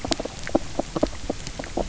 {"label": "biophony, knock croak", "recorder": "SoundTrap 300"}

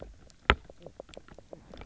{"label": "biophony, knock croak", "recorder": "SoundTrap 300"}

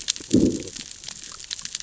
{"label": "biophony, growl", "recorder": "SoundTrap 600 or HydroMoth"}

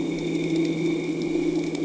{"label": "anthrophony, boat engine", "recorder": "HydroMoth"}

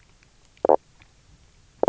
{"label": "biophony, knock croak", "recorder": "SoundTrap 300"}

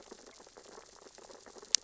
{"label": "biophony, sea urchins (Echinidae)", "recorder": "SoundTrap 600 or HydroMoth"}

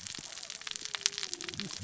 {"label": "biophony, cascading saw", "recorder": "SoundTrap 600 or HydroMoth"}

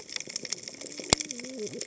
{"label": "biophony, cascading saw", "recorder": "HydroMoth"}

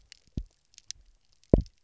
{"label": "biophony, double pulse", "recorder": "SoundTrap 300"}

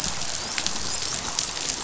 {"label": "biophony, dolphin", "recorder": "SoundTrap 500"}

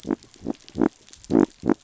{"label": "biophony", "recorder": "SoundTrap 500"}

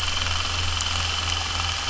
{"label": "anthrophony, boat engine", "recorder": "SoundTrap 300"}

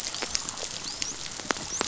{"label": "biophony, dolphin", "recorder": "SoundTrap 500"}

